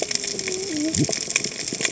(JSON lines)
{"label": "biophony, cascading saw", "recorder": "HydroMoth"}